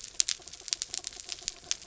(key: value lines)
label: anthrophony, mechanical
recorder: SoundTrap 300